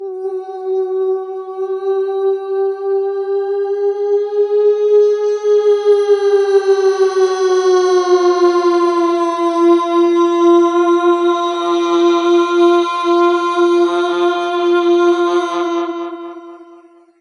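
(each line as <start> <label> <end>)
0.0 A siren with a climbing and then lowering pitch, becoming more uneven and echoing. 17.2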